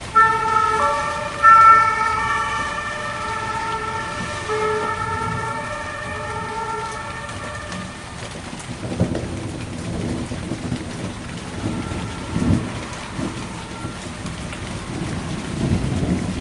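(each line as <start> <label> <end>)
0.0 Police siren fading away. 7.8
0.0 Soft rain is falling. 16.4
9.0 Distant thunder repeats. 16.4
11.6 A faint police siren is heard. 14.7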